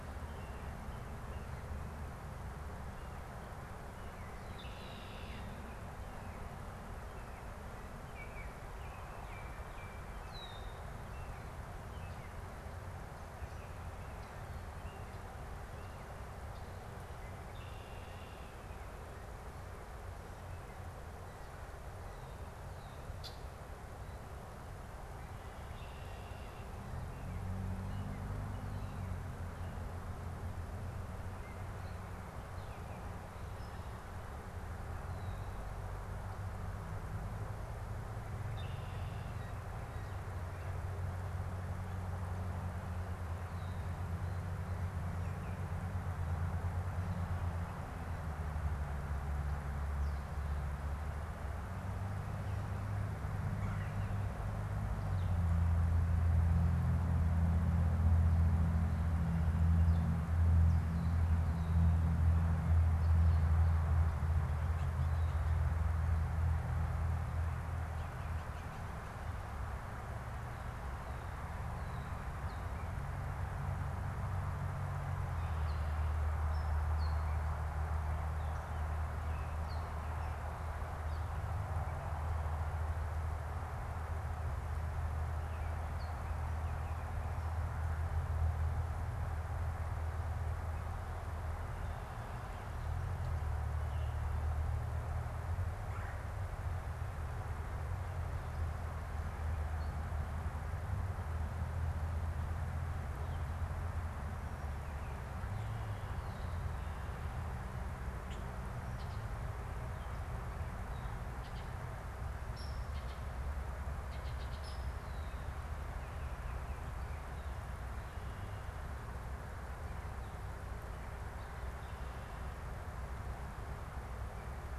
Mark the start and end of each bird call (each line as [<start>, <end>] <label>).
[4.17, 5.67] Red-winged Blackbird (Agelaius phoeniceus)
[7.76, 10.56] Baltimore Oriole (Icterus galbula)
[10.16, 10.87] Red-winged Blackbird (Agelaius phoeniceus)
[17.07, 18.57] Red-winged Blackbird (Agelaius phoeniceus)
[23.07, 23.36] Red-winged Blackbird (Agelaius phoeniceus)
[25.36, 26.66] Red-winged Blackbird (Agelaius phoeniceus)
[38.27, 39.56] Red-winged Blackbird (Agelaius phoeniceus)
[53.27, 54.06] Red-bellied Woodpecker (Melanerpes carolinus)
[67.56, 69.77] Blue Jay (Cyanocitta cristata)
[95.67, 96.27] Red-bellied Woodpecker (Melanerpes carolinus)
[112.47, 112.97] Hairy Woodpecker (Dryobates villosus)
[112.67, 114.97] Baltimore Oriole (Icterus galbula)
[114.56, 114.86] Hairy Woodpecker (Dryobates villosus)